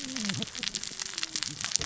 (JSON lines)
{"label": "biophony, cascading saw", "recorder": "SoundTrap 600 or HydroMoth"}